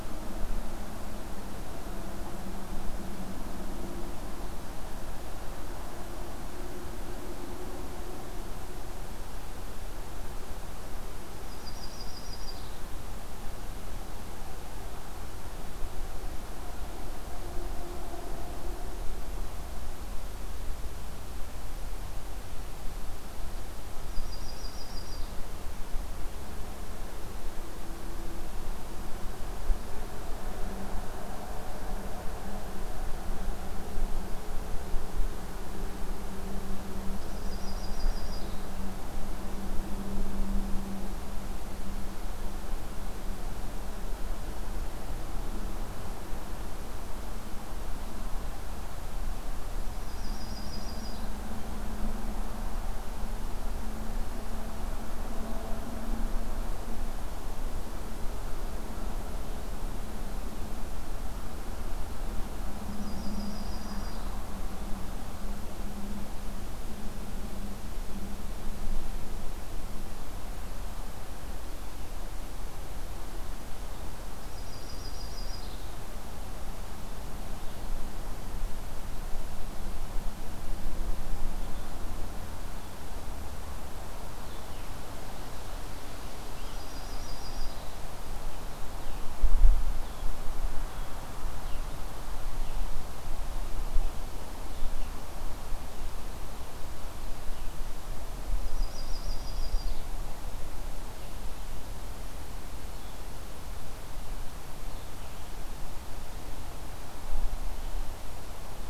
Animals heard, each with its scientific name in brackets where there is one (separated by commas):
Blue-headed Vireo (Vireo solitarius), Yellow-rumped Warbler (Setophaga coronata)